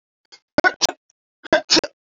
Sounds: Sneeze